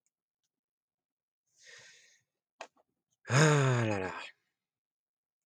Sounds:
Sigh